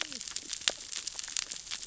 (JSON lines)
{"label": "biophony, cascading saw", "recorder": "SoundTrap 600 or HydroMoth"}